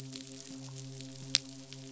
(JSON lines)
{"label": "biophony, midshipman", "recorder": "SoundTrap 500"}